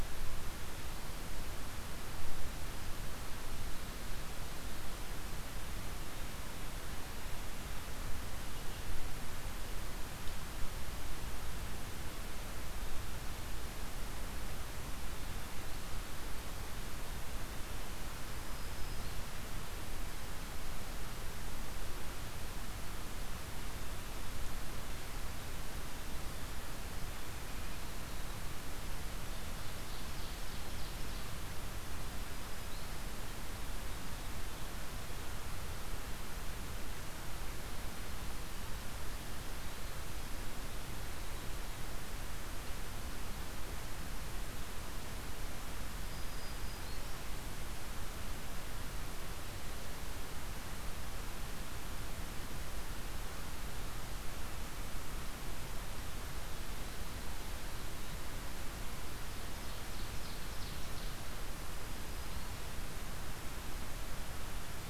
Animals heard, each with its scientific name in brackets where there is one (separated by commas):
Ovenbird (Seiurus aurocapilla), Eastern Wood-Pewee (Contopus virens), Black-throated Green Warbler (Setophaga virens)